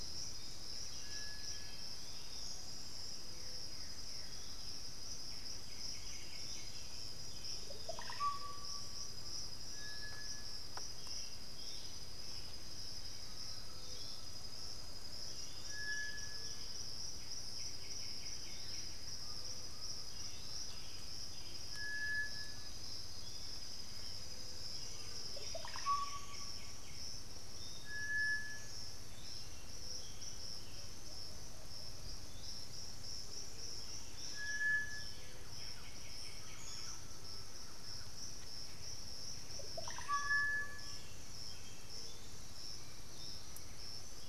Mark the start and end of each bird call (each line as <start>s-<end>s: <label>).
0.0s-4.7s: Blue-gray Saltator (Saltator coerulescens)
0.0s-7.8s: unidentified bird
0.0s-44.3s: Piratic Flycatcher (Legatus leucophaius)
0.2s-2.0s: Black-throated Antbird (Myrmophylax atrothorax)
5.2s-7.2s: White-winged Becard (Pachyramphus polychopterus)
7.5s-9.3s: Russet-backed Oropendola (Psarocolius angustifrons)
9.1s-21.2s: Undulated Tinamou (Crypturellus undulatus)
12.4s-14.4s: Black-throated Antbird (Myrmophylax atrothorax)
15.2s-16.8s: unidentified bird
17.1s-19.1s: White-winged Becard (Pachyramphus polychopterus)
17.7s-20.3s: Blue-gray Saltator (Saltator coerulescens)
19.9s-21.8s: Black-billed Thrush (Turdus ignobilis)
22.1s-23.5s: Black-throated Antbird (Myrmophylax atrothorax)
24.6s-26.9s: Undulated Tinamou (Crypturellus undulatus)
25.0s-26.9s: Russet-backed Oropendola (Psarocolius angustifrons)
25.1s-27.1s: White-winged Becard (Pachyramphus polychopterus)
29.2s-31.1s: Black-billed Thrush (Turdus ignobilis)
30.7s-32.3s: Plumbeous Pigeon (Patagioenas plumbea)
33.8s-38.7s: Thrush-like Wren (Campylorhynchus turdinus)
35.0s-37.1s: White-winged Becard (Pachyramphus polychopterus)
36.2s-38.5s: Undulated Tinamou (Crypturellus undulatus)
38.4s-44.3s: Black-billed Thrush (Turdus ignobilis)
41.9s-44.3s: Black-throated Antbird (Myrmophylax atrothorax)